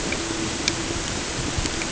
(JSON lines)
{"label": "ambient", "recorder": "HydroMoth"}